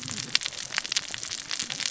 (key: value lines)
label: biophony, cascading saw
recorder: SoundTrap 600 or HydroMoth